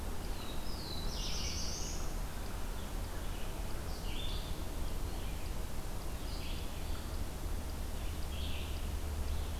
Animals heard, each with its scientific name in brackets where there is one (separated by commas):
Black-throated Blue Warbler (Setophaga caerulescens), Red-eyed Vireo (Vireo olivaceus)